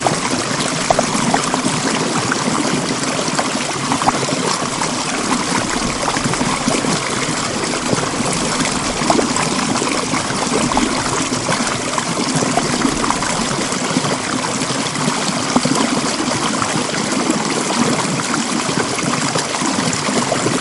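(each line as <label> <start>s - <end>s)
Water flowing loudly and quickly. 0.0s - 20.6s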